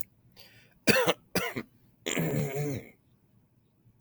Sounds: Throat clearing